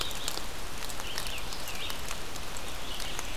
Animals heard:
forest ambience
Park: Marsh-Billings-Rockefeller National Historical Park